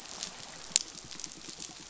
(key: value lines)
label: biophony, pulse
recorder: SoundTrap 500